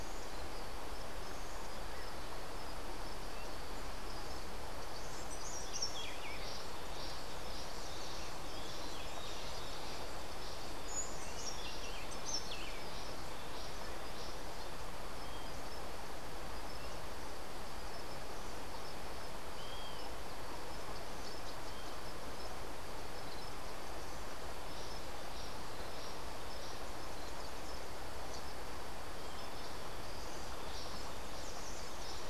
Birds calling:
Buff-throated Saltator (Saltator maximus)

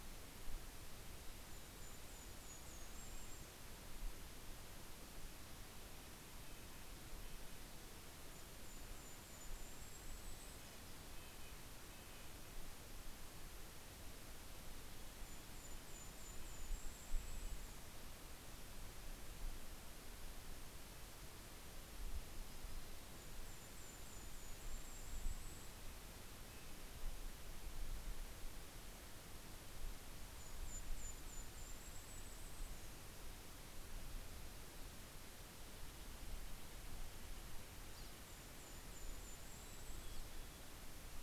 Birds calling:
Steller's Jay (Cyanocitta stelleri), Golden-crowned Kinglet (Regulus satrapa), Mountain Chickadee (Poecile gambeli), Red-breasted Nuthatch (Sitta canadensis), Pine Siskin (Spinus pinus)

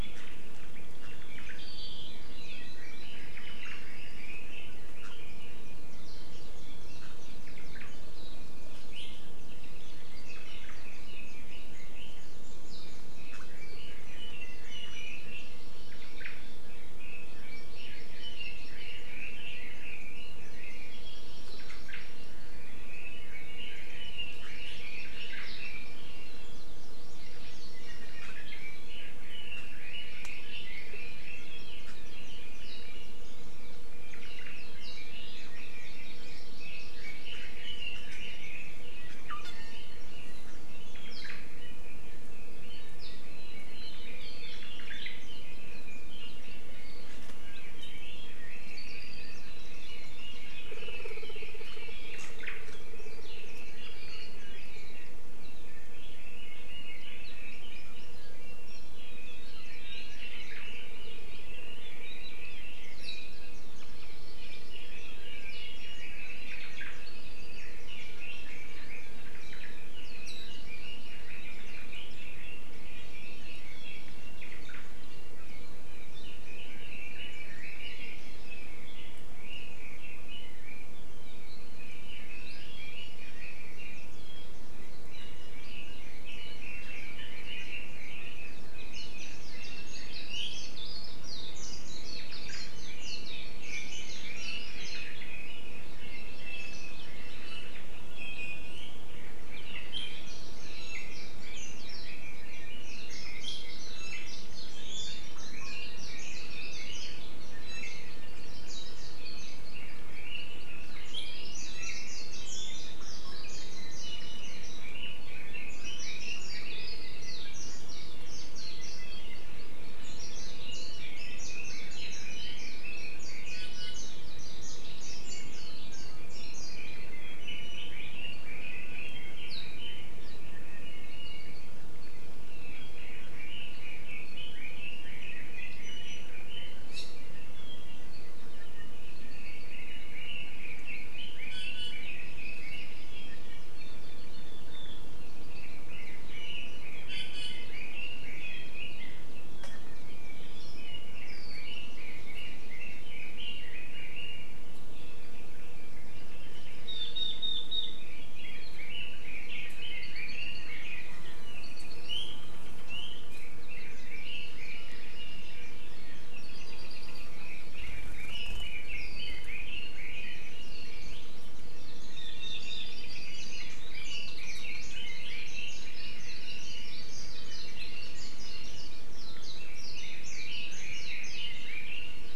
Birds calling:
Red-billed Leiothrix (Leiothrix lutea), Hawaii Amakihi (Chlorodrepanis virens), Omao (Myadestes obscurus), Apapane (Himatione sanguinea), Warbling White-eye (Zosterops japonicus), Iiwi (Drepanis coccinea)

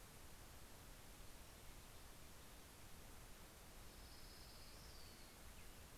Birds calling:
Orange-crowned Warbler (Leiothlypis celata)

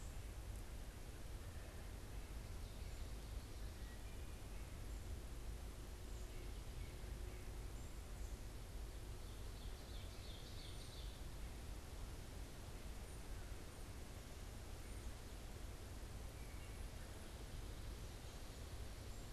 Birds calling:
Wood Thrush (Hylocichla mustelina), Ovenbird (Seiurus aurocapilla)

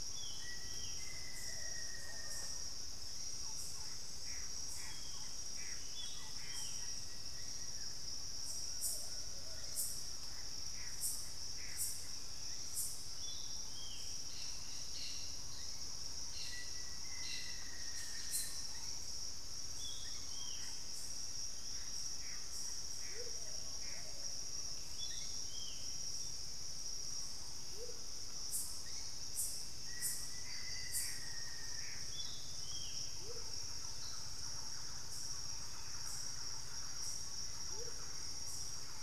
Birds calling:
Gray Antbird (Cercomacra cinerascens), Amazonian Motmot (Momotus momota), Black-spotted Bare-eye (Phlegopsis nigromaculata), Black-faced Antthrush (Formicarius analis), White-bellied Tody-Tyrant (Hemitriccus griseipectus), Collared Trogon (Trogon collaris), Cobalt-winged Parakeet (Brotogeris cyanoptera), Thrush-like Wren (Campylorhynchus turdinus), Plain-winged Antshrike (Thamnophilus schistaceus), Ringed Antpipit (Corythopis torquatus), Plumbeous Pigeon (Patagioenas plumbea)

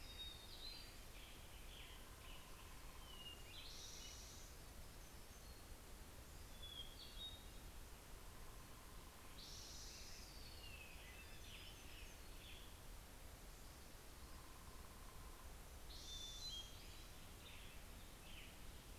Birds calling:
Hermit Thrush (Catharus guttatus), Hermit Warbler (Setophaga occidentalis), Western Tanager (Piranga ludoviciana)

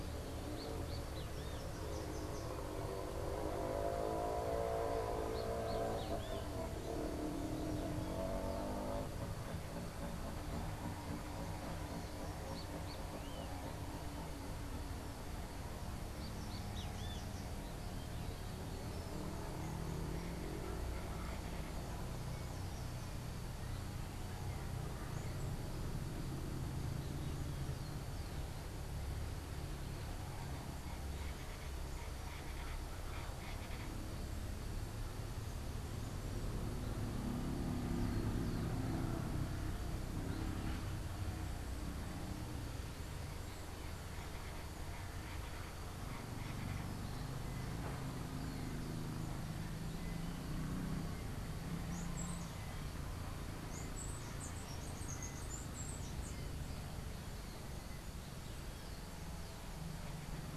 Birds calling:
Great Kiskadee (Pitangus sulphuratus), Colombian Chachalaca (Ortalis columbiana), Slate-throated Redstart (Myioborus miniatus), Chestnut-capped Brushfinch (Arremon brunneinucha)

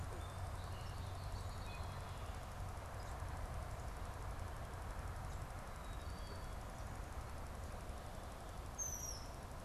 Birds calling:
Song Sparrow (Melospiza melodia), Black-capped Chickadee (Poecile atricapillus), Red-winged Blackbird (Agelaius phoeniceus)

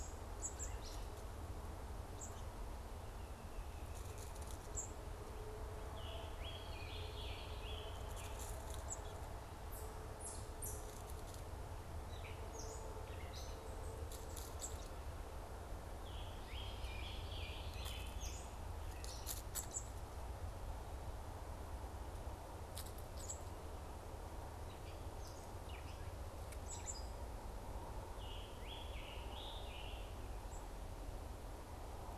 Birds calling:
unidentified bird, Gray Catbird (Dumetella carolinensis), Scarlet Tanager (Piranga olivacea)

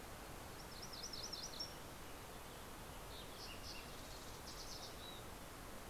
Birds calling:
Mountain Chickadee (Poecile gambeli), Fox Sparrow (Passerella iliaca), MacGillivray's Warbler (Geothlypis tolmiei)

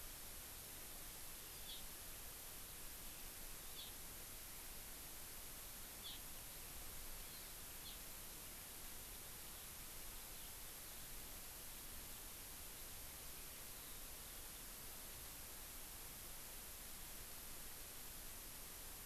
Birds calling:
Hawaii Amakihi (Chlorodrepanis virens), Eurasian Skylark (Alauda arvensis)

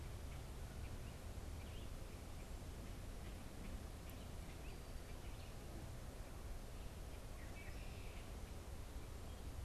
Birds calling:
Common Grackle (Quiscalus quiscula), Red-winged Blackbird (Agelaius phoeniceus)

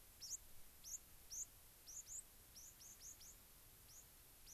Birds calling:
White-crowned Sparrow (Zonotrichia leucophrys)

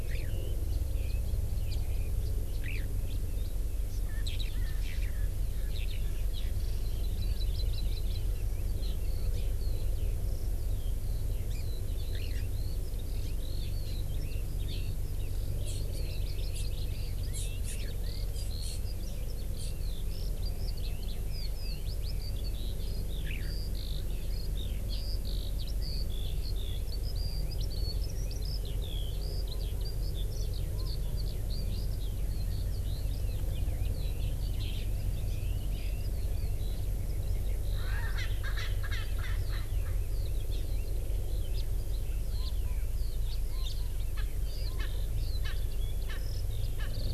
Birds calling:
Erckel's Francolin (Pternistis erckelii), Eurasian Skylark (Alauda arvensis), Hawaii Amakihi (Chlorodrepanis virens), Red-billed Leiothrix (Leiothrix lutea), House Finch (Haemorhous mexicanus)

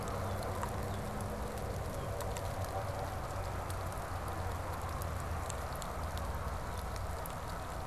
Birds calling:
Red-winged Blackbird (Agelaius phoeniceus)

